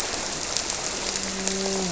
{"label": "biophony, grouper", "recorder": "SoundTrap 300"}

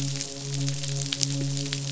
{"label": "biophony, midshipman", "recorder": "SoundTrap 500"}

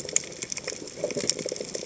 {"label": "biophony, chatter", "recorder": "HydroMoth"}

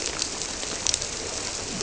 {"label": "biophony", "recorder": "SoundTrap 300"}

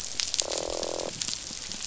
{"label": "biophony, croak", "recorder": "SoundTrap 500"}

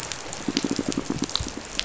{"label": "biophony, pulse", "recorder": "SoundTrap 500"}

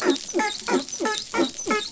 {"label": "biophony, dolphin", "recorder": "SoundTrap 500"}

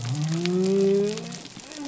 {"label": "biophony", "recorder": "SoundTrap 300"}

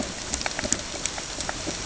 {"label": "ambient", "recorder": "HydroMoth"}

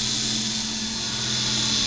{"label": "anthrophony, boat engine", "recorder": "SoundTrap 500"}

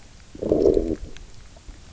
{"label": "biophony, low growl", "recorder": "SoundTrap 300"}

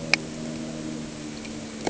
{"label": "anthrophony, boat engine", "recorder": "HydroMoth"}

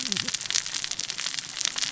{"label": "biophony, cascading saw", "recorder": "SoundTrap 600 or HydroMoth"}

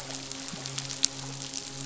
{"label": "biophony, midshipman", "recorder": "SoundTrap 500"}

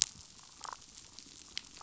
{"label": "biophony, damselfish", "recorder": "SoundTrap 500"}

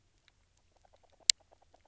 {"label": "biophony, knock croak", "recorder": "SoundTrap 300"}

